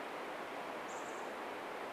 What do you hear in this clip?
Chestnut-backed Chickadee call